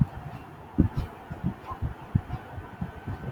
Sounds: Sneeze